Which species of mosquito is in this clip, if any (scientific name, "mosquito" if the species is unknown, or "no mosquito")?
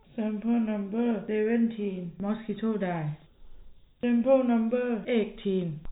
no mosquito